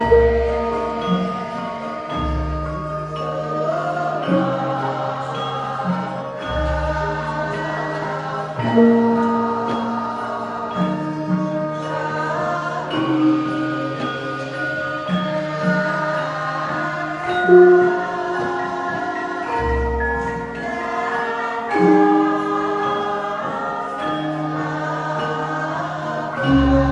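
A xylophone plays a rhythmic pattern. 0:00.0 - 0:26.9
Choir singers performing harmoniously. 0:01.7 - 0:26.9

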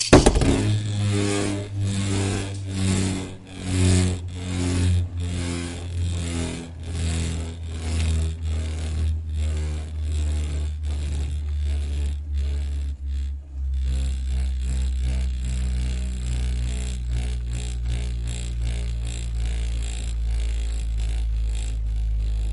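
An intense machine starts with a sudden, powerful roar. 0:00.0 - 0:22.5
A machine spins constantly nearby. 0:05.3 - 0:22.5

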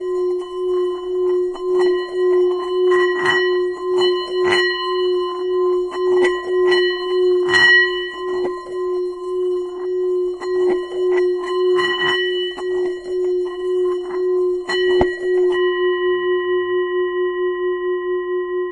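A Tibetan singing bowl produces irregular hollow staccato sounds. 0:00.0 - 0:18.7
A Tibetan singing bowl resonates with a steady pattern. 0:00.0 - 0:18.7

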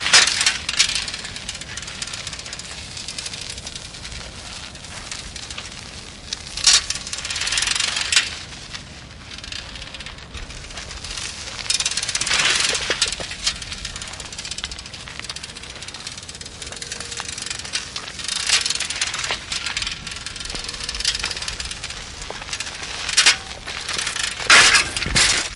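Rattling sounds of a bicycle in motion. 0:00.1 - 0:25.6

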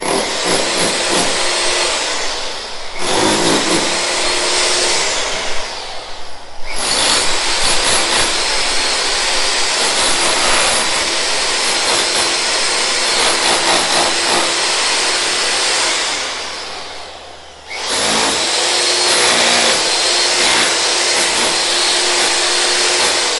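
An electric drill starts and stops. 0:00.0 - 0:02.8
An electric drill is drilling. 0:02.8 - 0:06.6
An electric drill is drilling continuously. 0:06.6 - 0:23.4

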